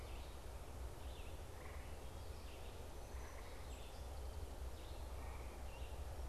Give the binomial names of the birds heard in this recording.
Vireo olivaceus, Melospiza melodia